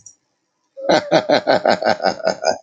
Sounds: Laughter